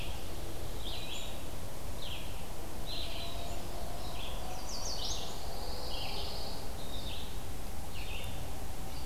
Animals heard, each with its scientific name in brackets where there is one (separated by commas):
Pine Warbler (Setophaga pinus), Chestnut-sided Warbler (Setophaga pensylvanica), Red-eyed Vireo (Vireo olivaceus)